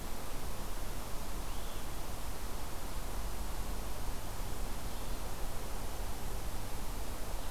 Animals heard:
Hermit Thrush (Catharus guttatus)

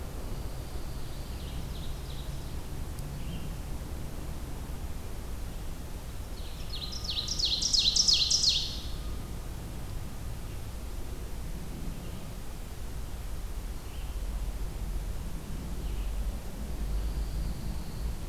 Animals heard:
Ovenbird (Seiurus aurocapilla)
Pine Warbler (Setophaga pinus)
Red-eyed Vireo (Vireo olivaceus)

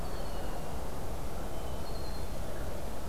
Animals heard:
Red-winged Blackbird (Agelaius phoeniceus)

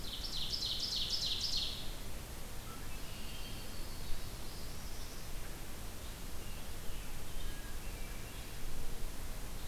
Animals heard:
Red-winged Blackbird (Agelaius phoeniceus)
Yellow-rumped Warbler (Setophaga coronata)
Northern Parula (Setophaga americana)
Ovenbird (Seiurus aurocapilla)
Scarlet Tanager (Piranga olivacea)
Hermit Thrush (Catharus guttatus)

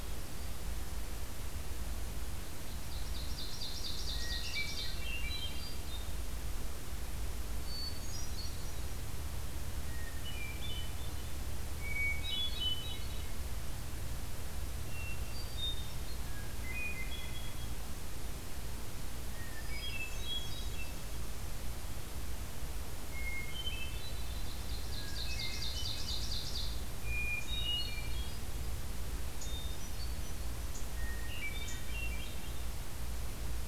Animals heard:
Ovenbird (Seiurus aurocapilla)
Hermit Thrush (Catharus guttatus)

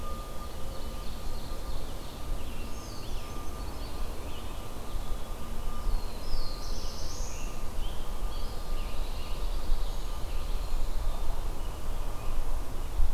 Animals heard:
Black-throated Blue Warbler (Setophaga caerulescens)
Scarlet Tanager (Piranga olivacea)
Ovenbird (Seiurus aurocapilla)
Pine Warbler (Setophaga pinus)

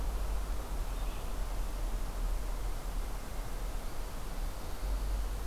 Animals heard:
Black-throated Green Warbler (Setophaga virens)

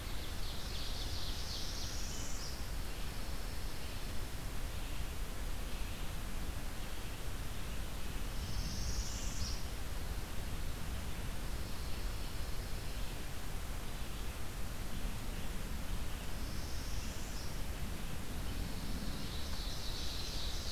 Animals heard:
Ovenbird (Seiurus aurocapilla)
Red-eyed Vireo (Vireo olivaceus)
Northern Parula (Setophaga americana)
Pine Warbler (Setophaga pinus)

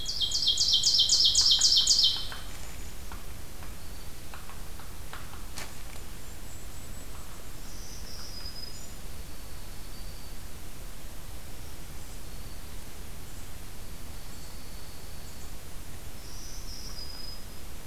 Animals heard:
Golden-crowned Kinglet (Regulus satrapa)
Hairy Woodpecker (Dryobates villosus)
Broad-winged Hawk (Buteo platypterus)
Ovenbird (Seiurus aurocapilla)
Black-throated Green Warbler (Setophaga virens)

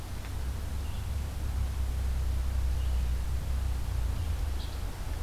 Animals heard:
Red-eyed Vireo (Vireo olivaceus)
Evening Grosbeak (Coccothraustes vespertinus)

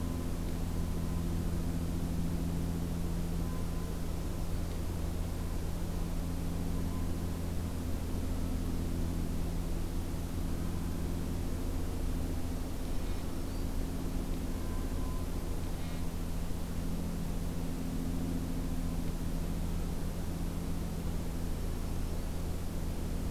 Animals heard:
Black-throated Green Warbler (Setophaga virens)

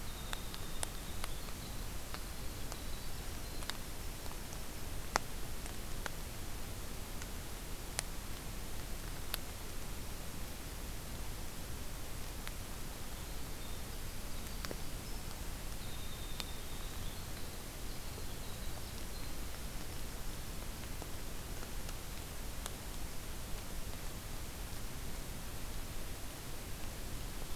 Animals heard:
Winter Wren (Troglodytes hiemalis)

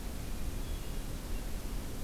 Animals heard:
Hermit Thrush (Catharus guttatus)

